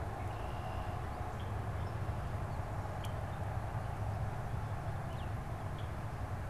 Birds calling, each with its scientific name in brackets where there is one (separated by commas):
Red-winged Blackbird (Agelaius phoeniceus), Baltimore Oriole (Icterus galbula)